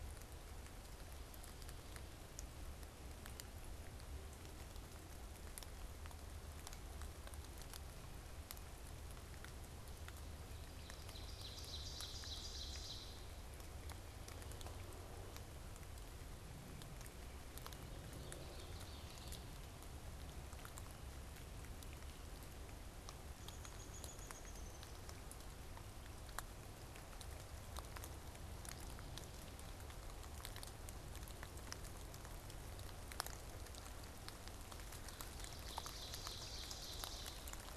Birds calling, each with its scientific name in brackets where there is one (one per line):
Downy Woodpecker (Dryobates pubescens)
Ovenbird (Seiurus aurocapilla)
Common Yellowthroat (Geothlypis trichas)